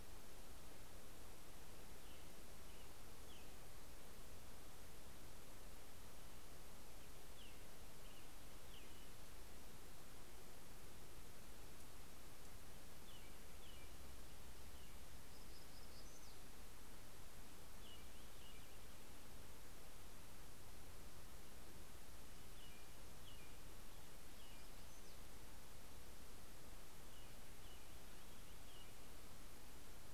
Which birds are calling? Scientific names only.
Turdus migratorius, Setophaga nigrescens